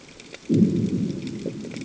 {"label": "anthrophony, bomb", "recorder": "HydroMoth"}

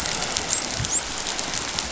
{"label": "biophony, dolphin", "recorder": "SoundTrap 500"}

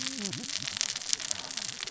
{"label": "biophony, cascading saw", "recorder": "SoundTrap 600 or HydroMoth"}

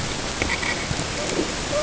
{"label": "ambient", "recorder": "HydroMoth"}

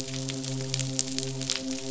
{"label": "biophony, midshipman", "recorder": "SoundTrap 500"}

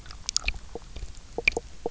{"label": "biophony, knock croak", "recorder": "SoundTrap 300"}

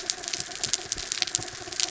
{"label": "anthrophony, mechanical", "recorder": "SoundTrap 300"}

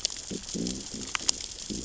{"label": "biophony, growl", "recorder": "SoundTrap 600 or HydroMoth"}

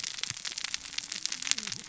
{"label": "biophony, cascading saw", "recorder": "SoundTrap 600 or HydroMoth"}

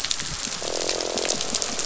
{"label": "biophony, croak", "recorder": "SoundTrap 500"}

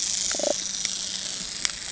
{"label": "anthrophony, boat engine", "recorder": "HydroMoth"}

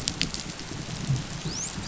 {"label": "biophony, dolphin", "recorder": "SoundTrap 500"}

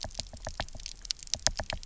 {"label": "biophony, knock", "recorder": "SoundTrap 300"}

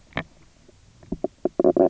{"label": "biophony, knock croak", "recorder": "SoundTrap 300"}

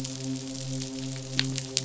{"label": "biophony, midshipman", "recorder": "SoundTrap 500"}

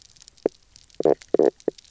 {"label": "biophony, knock croak", "recorder": "SoundTrap 300"}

